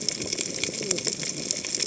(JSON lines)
{"label": "biophony, cascading saw", "recorder": "HydroMoth"}